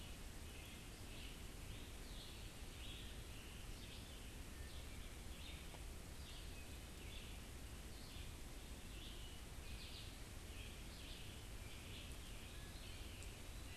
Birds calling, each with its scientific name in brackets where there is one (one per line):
Red-eyed Vireo (Vireo olivaceus)
Scarlet Tanager (Piranga olivacea)